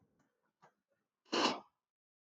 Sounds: Sniff